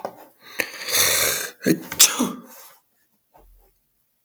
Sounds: Sneeze